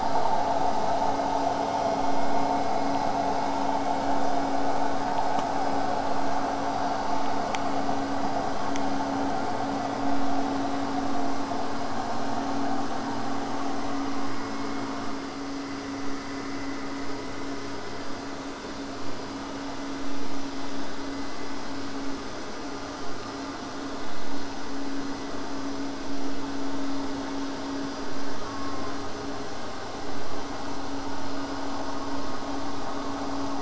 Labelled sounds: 0.0	5.0	vessel noise, 0 to 8.0 kHz
28.4	29.2	killer whale, southern resident, J pod, call S04, 0.16 to 1.4 kHz

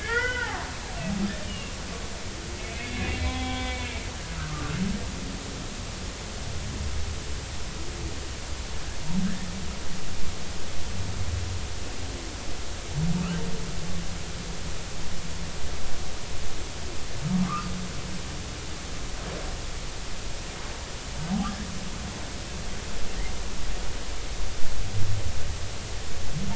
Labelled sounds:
0.0	0.7	humpback whale, 0.80 to 3.5 kHz
1.5	1.7	humpback whale, 2.6 to 3.0 kHz
2.8	3.9	humpback whale, 0.80 to 3.4 kHz
4.3	4.7	humpback whale, 1.1 to 1.6 kHz
17.4	17.7	humpback whale, 1.0 to 1.5 kHz
21.4	21.7	humpback whale, 1.1 to 1.8 kHz

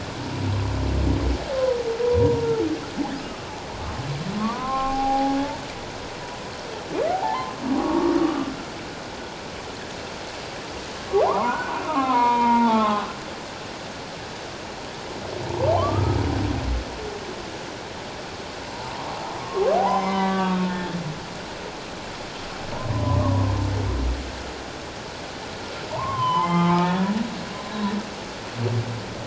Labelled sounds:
2.2	2.6	humpback whale, 0.84 to 1.0 kHz
3.3	3.6	humpback whale, 1.2 to 1.3 kHz
4.4	5.3	humpback whale, 0.78 to 1.4 kHz
7.1	8.5	humpback whale, 0.78 to 1.3 kHz
11.1	13.0	humpback whale, 0.78 to 2.4 kHz
15.8	16.2	humpback whale, 0.97 to 1.3 kHz
18.7	21.0	humpback whale, 0.78 to 5.2 kHz
22.9	23.5	humpback whale, 0.91 to 1.2 kHz
25.9	27.1	humpback whale, 0.78 to 3.2 kHz

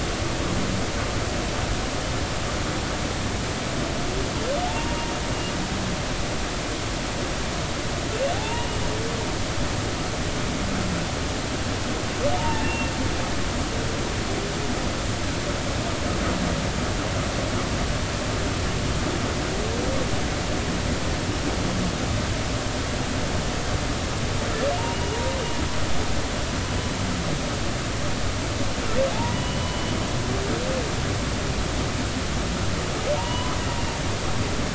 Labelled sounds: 4.7	5.1	humpback whale, 0.80 to 2.8 kHz
8.3	8.7	humpback whale, 0.80 to 2.9 kHz
12.4	12.9	humpback whale, 0.83 to 2.8 kHz
24.8	25.2	humpback whale, 2.7 to 2.9 kHz
29.1	29.9	humpback whale, 0.80 to 3.1 kHz
33.2	33.6	humpback whale, 0.86 to 3.0 kHz

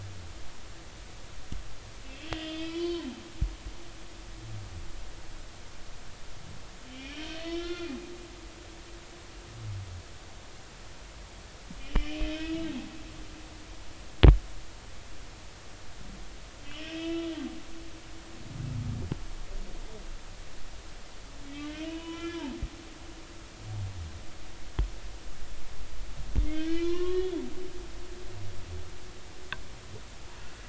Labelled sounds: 2.1	3.1	humpback whale, 0.96 to 4.5 kHz
6.9	8.0	humpback whale, 1.3 to 5.6 kHz
11.8	12.6	humpback whale, 2.3 to 3.3 kHz
16.6	17.3	humpback whale, 2.5 to 3.7 kHz
21.6	22.5	humpback whale, 0.93 to 3.5 kHz
26.4	27.4	humpback whale, 0.99 to 4.4 kHz

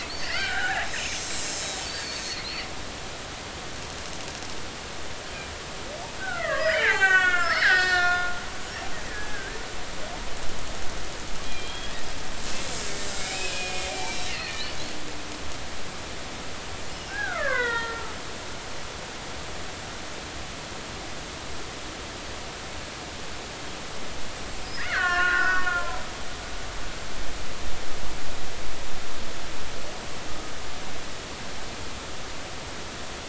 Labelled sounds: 0.1	1.5	killer whale, Bigg's (transient), 0.80 to 7.6 kHz
2.0	3.1	killer whale, Bigg's (transient), 3.8 to 8.0 kHz
6.2	8.4	killer whale, Bigg's (transient), 0.80 to 7.7 kHz
9.1	9.6	killer whale, Bigg's (transient), 1.5 to 1.8 kHz
11.4	11.9	killer whale, Bigg's (transient), 2.3 to 3.4 kHz
13.2	14.8	killer whale, Bigg's (transient), 1.7 to 4.5 kHz
16.9	18.2	killer whale, Bigg's (transient), 0.86 to 5.4 kHz
24.6	26.1	killer whale, Bigg's (transient), 0.93 to 5.2 kHz

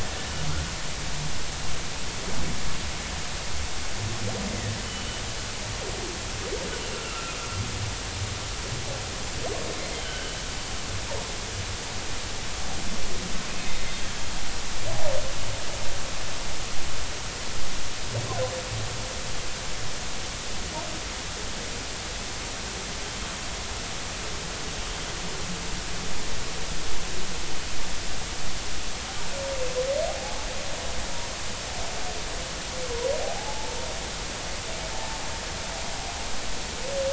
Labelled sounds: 7.0	7.3	humpback whale, 1.2 to 1.4 kHz
9.9	10.4	humpback whale, 1.4 to 3.2 kHz
13.6	13.9	humpback whale, 3.6 to 3.7 kHz
30.1	30.5	humpback whale, 0.80 to 0.90 kHz
33.2	33.7	humpback whale, 0.80 to 0.93 kHz
34.9	35.2	humpback whale, 0.80 to 0.93 kHz

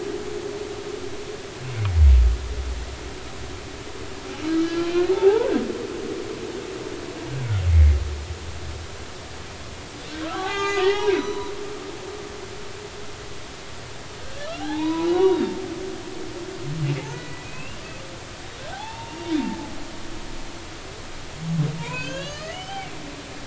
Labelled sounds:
4.4	4.7	humpback whale, 1.2 to 1.3 kHz
5.1	5.6	humpback whale, 0.80 to 1.6 kHz
7.7	8.0	humpback whale, 2.0 to 2.3 kHz
10.2	11.5	humpback whale, 0.80 to 6.5 kHz
14.2	15.6	humpback whale, 0.80 to 4.0 kHz
17.1	17.8	humpback whale, 1.4 to 2.9 kHz
18.7	19.7	humpback whale, 0.80 to 3.7 kHz
21.8	22.9	humpback whale, 0.90 to 5.2 kHz

